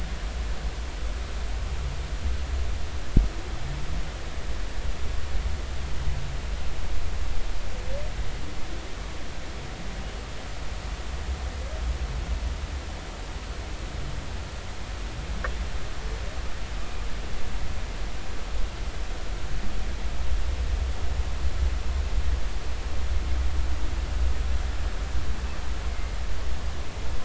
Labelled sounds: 25.9	26.2	humpback whale, 2.0 to 2.2 kHz

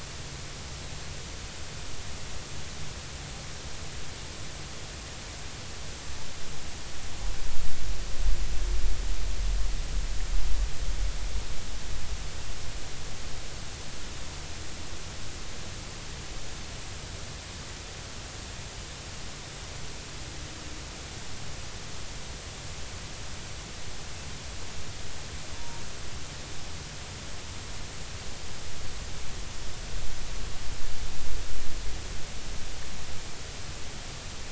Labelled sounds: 25.5	25.8	humpback whale, 0.90 to 1.0 kHz

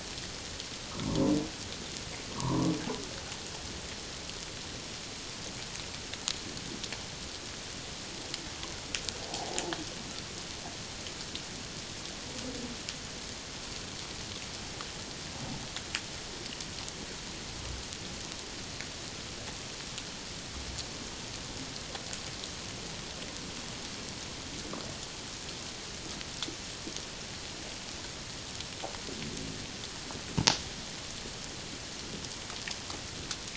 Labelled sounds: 1.0	1.3	humpback whale, 0.88 to 1.2 kHz
2.3	2.7	humpback whale, 0.88 to 1.3 kHz
9.3	9.7	humpback whale, 0.78 to 0.97 kHz

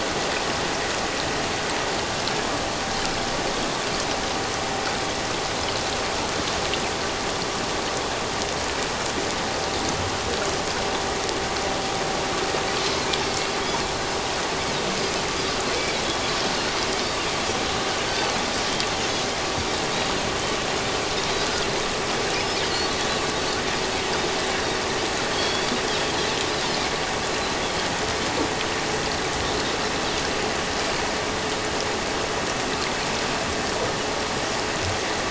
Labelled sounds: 15.7	16.0	Pacific white-sided dolphin, 2.2 to 2.4 kHz
25.3	25.8	Pacific white-sided dolphin, 3.1 to 3.6 kHz

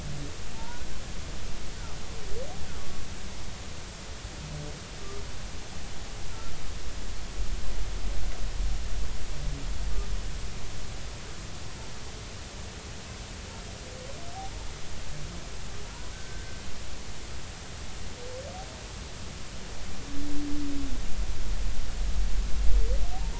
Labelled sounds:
0.5	0.9	humpback whale, 0.86 to 1.5 kHz
16.1	16.6	humpback whale, 1.5 to 1.6 kHz

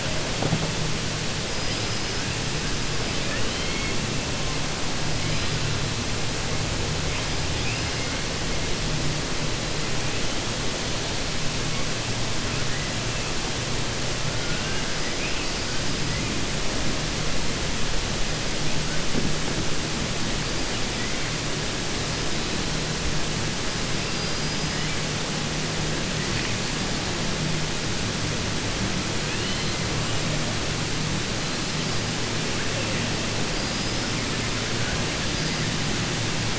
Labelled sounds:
3.2	3.9	killer whale, 1.3 to 4.1 kHz
7.5	8.1	killer whale, 1.4 to 3.5 kHz
24.1	24.7	killer whale, 3.9 to 5.9 kHz
29.2	29.7	killer whale, 1.7 to 4.3 kHz

